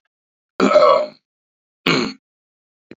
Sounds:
Throat clearing